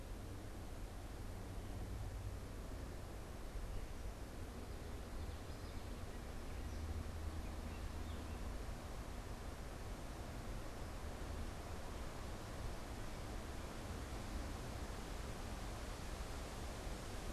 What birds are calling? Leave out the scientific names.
Common Yellowthroat